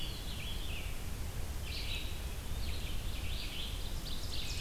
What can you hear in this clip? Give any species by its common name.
Eastern Wood-Pewee, Red-eyed Vireo, Ovenbird